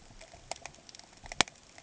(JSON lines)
{"label": "ambient", "recorder": "HydroMoth"}